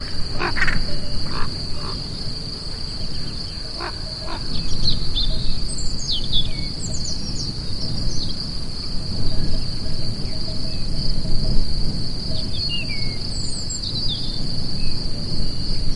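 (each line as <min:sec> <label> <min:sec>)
0:00.0 A crow caws loudly in different rhythms while cowbells ring repeatedly in the background. 0:02.4
0:02.5 Birds sing and cowbells ring rhythmically outdoors. 0:16.0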